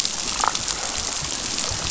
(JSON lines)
{"label": "biophony, damselfish", "recorder": "SoundTrap 500"}